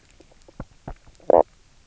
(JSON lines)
{"label": "biophony, knock croak", "recorder": "SoundTrap 300"}